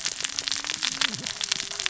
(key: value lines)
label: biophony, cascading saw
recorder: SoundTrap 600 or HydroMoth